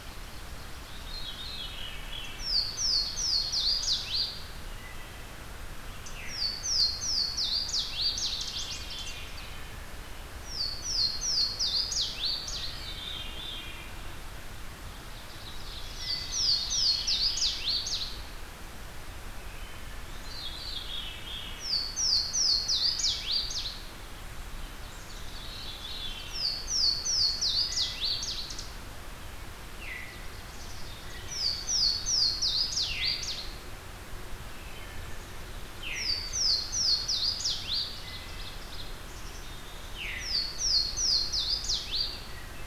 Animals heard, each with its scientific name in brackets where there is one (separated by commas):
Louisiana Waterthrush (Parkesia motacilla), Black-capped Chickadee (Poecile atricapillus), Ovenbird (Seiurus aurocapilla), Veery (Catharus fuscescens), Wood Thrush (Hylocichla mustelina)